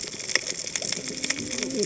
{"label": "biophony, cascading saw", "recorder": "HydroMoth"}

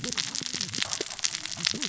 {"label": "biophony, cascading saw", "recorder": "SoundTrap 600 or HydroMoth"}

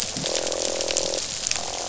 {"label": "biophony, croak", "recorder": "SoundTrap 500"}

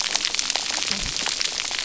{"label": "biophony, cascading saw", "recorder": "SoundTrap 300"}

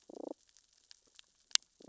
{"label": "biophony, damselfish", "recorder": "SoundTrap 600 or HydroMoth"}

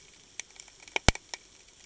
{"label": "ambient", "recorder": "HydroMoth"}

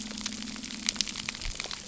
{"label": "anthrophony, boat engine", "recorder": "SoundTrap 300"}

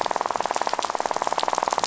{"label": "biophony, rattle", "recorder": "SoundTrap 500"}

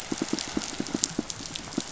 {"label": "biophony, pulse", "recorder": "SoundTrap 500"}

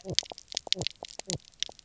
{"label": "biophony, knock croak", "recorder": "SoundTrap 300"}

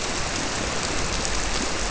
{"label": "biophony", "recorder": "SoundTrap 300"}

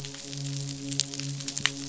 {"label": "biophony, midshipman", "recorder": "SoundTrap 500"}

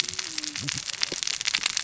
{"label": "biophony, cascading saw", "recorder": "SoundTrap 600 or HydroMoth"}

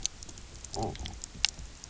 {"label": "biophony, low growl", "recorder": "SoundTrap 300"}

